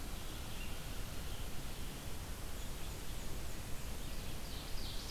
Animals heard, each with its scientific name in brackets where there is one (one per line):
Black-and-white Warbler (Mniotilta varia)
Ovenbird (Seiurus aurocapilla)
Red-eyed Vireo (Vireo olivaceus)